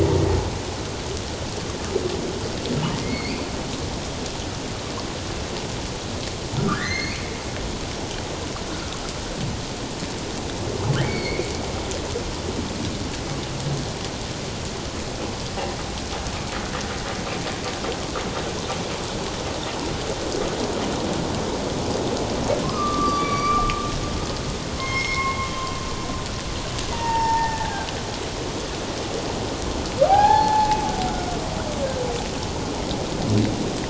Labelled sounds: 3.0	3.4	humpback whale, 2.0 to 4.8 kHz
6.6	7.2	humpback whale, 1.1 to 4.7 kHz
11.0	11.5	humpback whale, 2.1 to 4.5 kHz
22.6	23.7	humpback whale, 1.0 to 5.9 kHz
24.8	25.8	humpback whale, 1.0 to 6.5 kHz
26.9	27.9	humpback whale, 0.78 to 2.8 kHz
30.1	30.8	humpback whale, 0.78 to 4.4 kHz

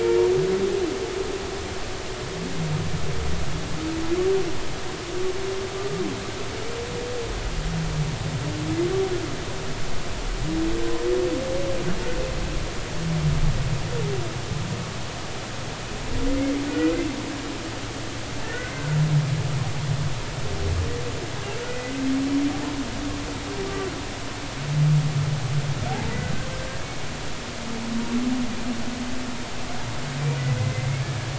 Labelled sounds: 16.7	16.9	humpback whale, 1.4 to 1.5 kHz
18.4	18.8	humpback whale, 1.7 to 2.1 kHz
21.7	22.0	humpback whale, 1.95 to 2.05 kHz
25.9	26.1	humpback whale, 0.80 to 0.93 kHz
30.6	31.0	humpback whale, 2.0 to 2.2 kHz

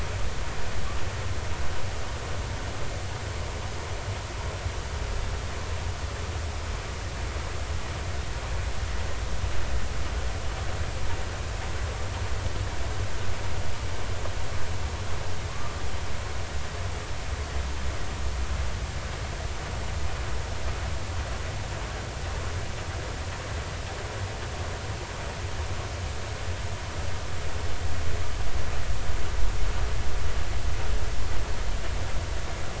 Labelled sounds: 15.5	15.8	humpback whale, 1.0 to 1.3 kHz

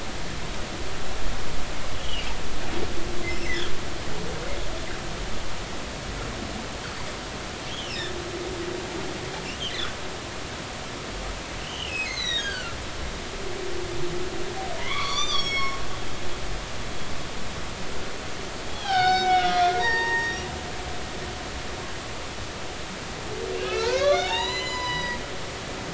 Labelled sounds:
2.0	2.3	humpback whale, 2.6 to 3.4 kHz
7.7	8.1	humpback whale, 2.4 to 5.7 kHz
11.6	12.8	humpback whale, 1.2 to 6.6 kHz
14.8	15.8	humpback whale, 0.96 to 7.3 kHz
18.6	21.4	humpback whale, 0.80 to 6.1 kHz
23.5	25.2	humpback whale, 0.80 to 7.1 kHz

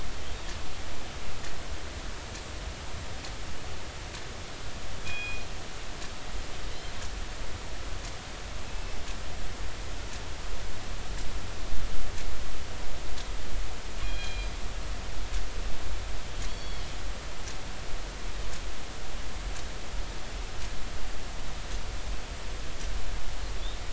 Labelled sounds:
5.0	5.4	killer whale, northern resident, G clan, call N24ii, 2.4 to 3.4 kHz
8.6	9.0	killer whale, northern resident, G clan, call N24ii, 2.6 to 2.7 kHz
14.0	14.5	killer whale, northern resident, G clan, call N24ii, 2.3 to 4.1 kHz
16.5	16.9	killer whale, northern resident, A clan, AB subclan, call N20, 3.1 to 4.6 kHz

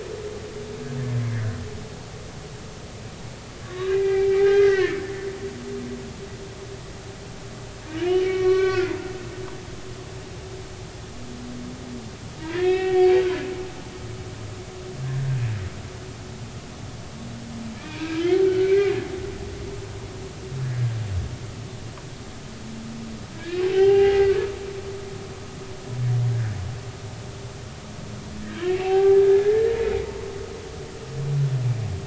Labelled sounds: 1.2	1.6	humpback whale, 1.4 to 2.3 kHz
3.6	5.0	humpback whale, 0.80 to 2.6 kHz
8.2	8.9	humpback whale, 1.1 to 4.3 kHz
12.4	13.1	humpback whale, 1.5 to 4.3 kHz
15.0	15.3	humpback whale, 1.7 to 1.8 kHz
17.8	18.9	humpback whale, 1.4 to 2.8 kHz
20.6	20.9	humpback whale, 1.6 to 1.8 kHz
23.3	24.3	humpback whale, 0.80 to 2.9 kHz
28.4	29.6	humpback whale, 0.80 to 2.8 kHz

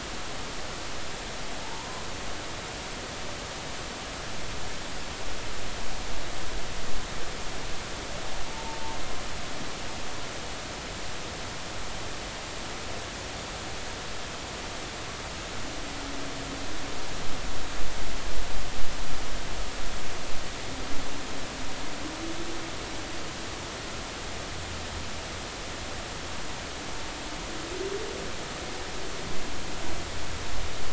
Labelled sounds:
1.6	2.0	humpback whale, 0.83 to 1.1 kHz
8.5	8.8	humpback whale, 0.86 to 0.96 kHz

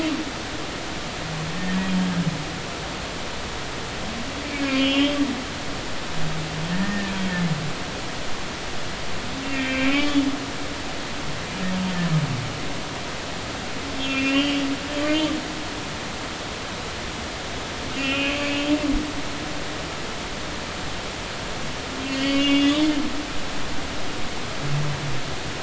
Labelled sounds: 4.7	5.2	humpback whale, 2.6 to 3.4 kHz
6.8	7.1	humpback whale, 1.7 to 1.9 kHz
9.5	10.2	humpback whale, 1.5 to 3.6 kHz
13.9	14.6	humpback whale, 2.3 to 3.6 kHz
18.0	18.7	humpback whale, 2.2 to 3.1 kHz
22.1	22.9	humpback whale, 2.1 to 4.5 kHz
23.4	23.8	humpback whale, 3.3 to 3.7 kHz

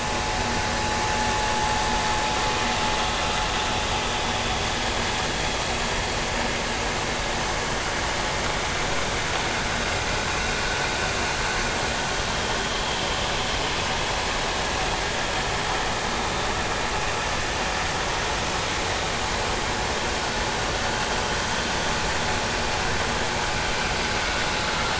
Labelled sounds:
12.6	12.8	vessel noise, 3.0 to 3.3 kHz

